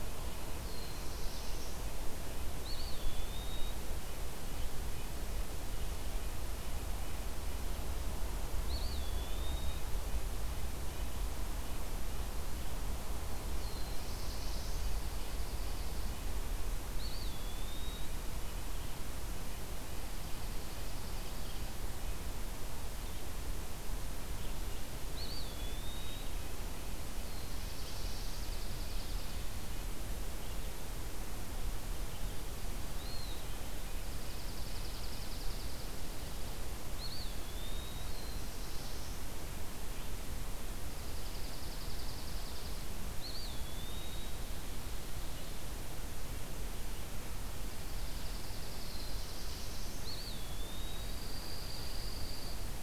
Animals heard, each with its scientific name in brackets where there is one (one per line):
Black-throated Blue Warbler (Setophaga caerulescens)
Dark-eyed Junco (Junco hyemalis)
Red-breasted Nuthatch (Sitta canadensis)
Eastern Wood-Pewee (Contopus virens)